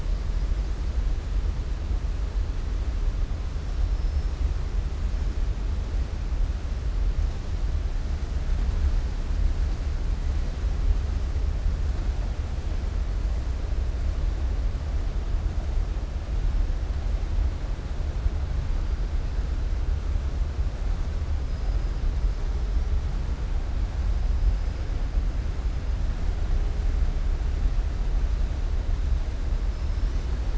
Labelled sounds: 3.9	4.3	killer whale, southern resident, 5.1 to 5.5 kHz

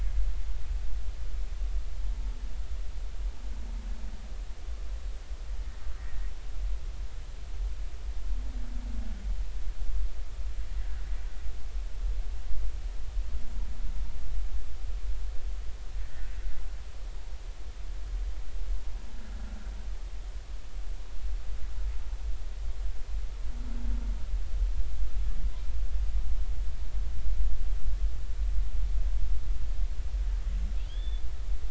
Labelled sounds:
16.0	16.3	humpback whale, 1.7 to 2.0 kHz
30.8	31.2	humpback whale, 1.6 to 3.7 kHz

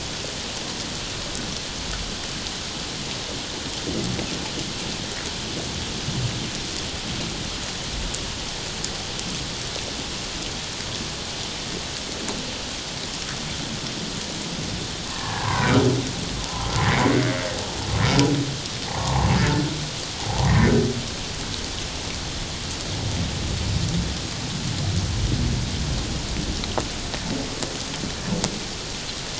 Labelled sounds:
15.1	15.8	humpback whale, 0.78 to 1.8 kHz
18.9	19.3	humpback whale, 0.78 to 1.2 kHz
20.2	20.7	humpback whale, 0.78 to 1.9 kHz

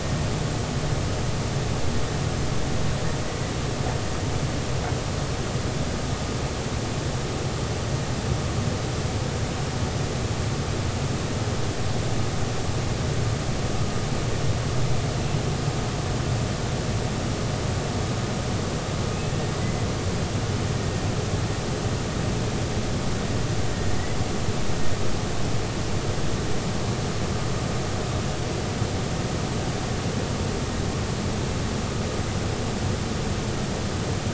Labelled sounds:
19.1	19.9	humpback whale, 1.9 to 2.8 kHz

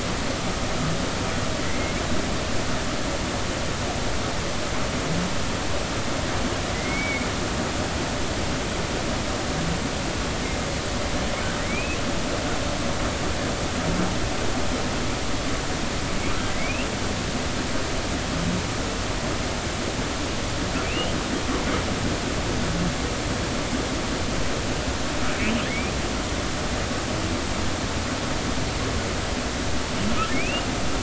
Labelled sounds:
1.6	2.0	humpback whale, 1.9 to 2.2 kHz
6.7	7.3	humpback whale, 2.0 to 2.4 kHz
11.6	12.0	humpback whale, 1.8 to 2.7 kHz
16.5	16.9	humpback whale, 2.0 to 2.8 kHz
20.8	21.1	humpback whale, 2.2 to 3.2 kHz
25.7	25.9	humpback whale, 2.0 to 2.6 kHz
30.3	30.7	humpback whale, 2.1 to 2.9 kHz

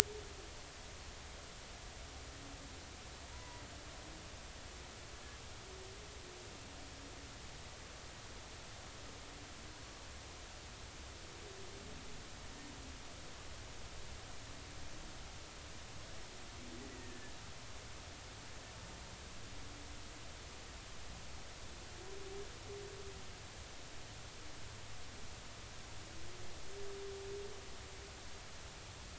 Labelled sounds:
3.3	3.6	humpback whale, 0.93 to 1.0 kHz
16.8	17.3	humpback whale, 1.7 to 2.0 kHz

